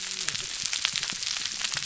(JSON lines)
{"label": "biophony, whup", "recorder": "SoundTrap 300"}